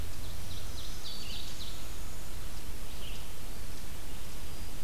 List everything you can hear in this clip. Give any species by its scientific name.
Seiurus aurocapilla, Tamias striatus, Vireo olivaceus, Setophaga virens, unidentified call